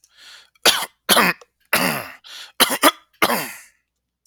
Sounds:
Cough